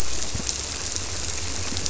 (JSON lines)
{"label": "biophony", "recorder": "SoundTrap 300"}